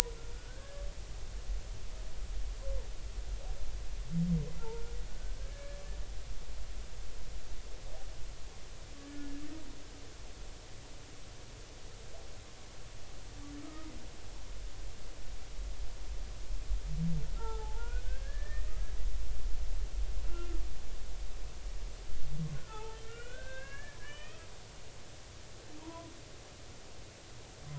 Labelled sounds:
0.3	0.8	humpback whale, 1.4 to 1.8 kHz
4.6	5.8	humpback whale, 0.83 to 1.8 kHz
9.0	9.4	humpback whale, 1.6 to 1.8 kHz
13.6	13.9	humpback whale, 1.2 to 1.3 kHz
17.4	18.8	humpback whale, 0.80 to 1.9 kHz
20.3	20.6	humpback whale, 1.2 to 1.4 kHz
22.5	24.5	humpback whale, 0.80 to 3.3 kHz
25.8	26.1	humpback whale, 0.90 to 1.1 kHz

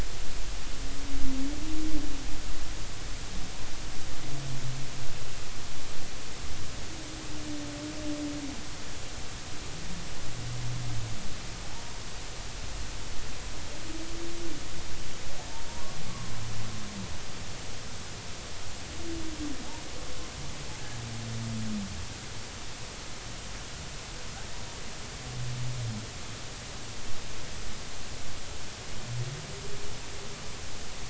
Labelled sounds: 11.7	12.0	humpback whale, 0.83 to 1.1 kHz
16.1	16.4	humpback whale, 0.99 to 1.2 kHz

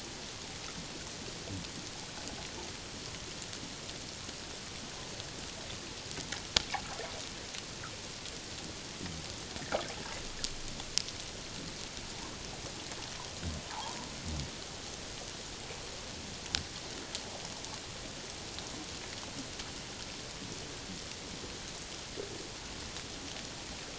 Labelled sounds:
13.7	14.0	fish, 0.78 to 1.1 kHz

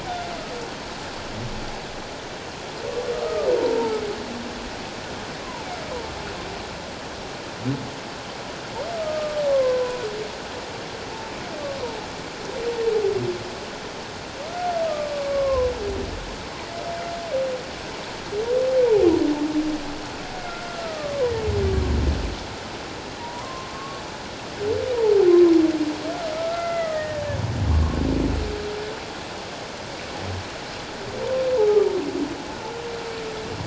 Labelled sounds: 3.1	4.0	humpback whale, 0.81 to 1.3 kHz
9.0	10.0	humpback whale, 0.94 to 1.3 kHz
11.8	12.1	humpback whale, 0.81 to 1.1 kHz
15.1	15.7	humpback whale, 0.94 to 1.2 kHz
20.3	21.2	humpback whale, 1.0 to 1.5 kHz
23.2	24.0	humpback whale, 0.81 to 1.2 kHz
25.3	25.5	humpback whale, 0.91 to 1.1 kHz
26.3	27.2	humpback whale, 1.2 to 2.1 kHz
27.7	28.0	humpback whale, 1.0 to 1.2 kHz
31.6	31.8	humpback whale, 0.81 to 1.0 kHz

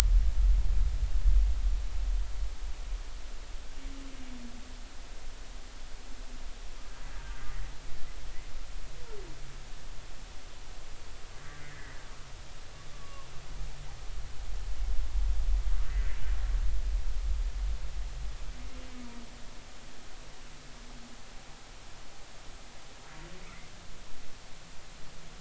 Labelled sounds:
11.6	12.0	humpback whale, 1.7 to 2.1 kHz
12.9	13.3	humpback whale, 1.0 to 1.2 kHz
15.9	16.1	humpback whale, 1.8 to 2.0 kHz

